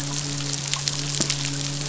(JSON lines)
{"label": "biophony, midshipman", "recorder": "SoundTrap 500"}